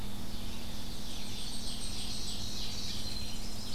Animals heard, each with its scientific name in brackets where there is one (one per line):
Tennessee Warbler (Leiothlypis peregrina)
Blackpoll Warbler (Setophaga striata)
Ovenbird (Seiurus aurocapilla)
Winter Wren (Troglodytes hiemalis)